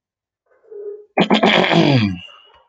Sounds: Throat clearing